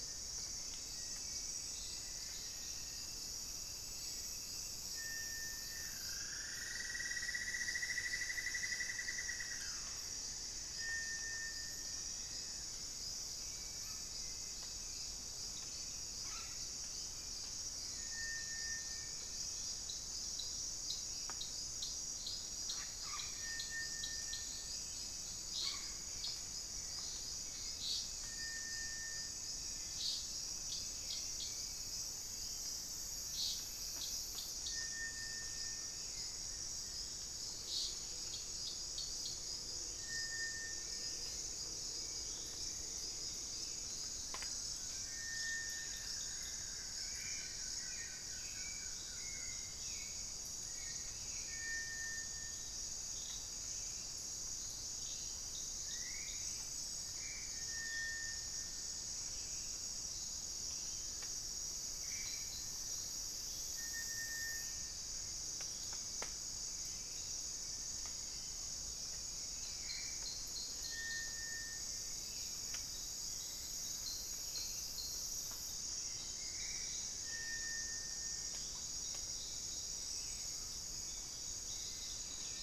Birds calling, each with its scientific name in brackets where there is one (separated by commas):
Buff-throated Woodcreeper (Xiphorhynchus guttatus), unidentified bird, Hauxwell's Thrush (Turdus hauxwelli), Black-faced Antthrush (Formicarius analis), Cinnamon-throated Woodcreeper (Dendrexetastes rufigula)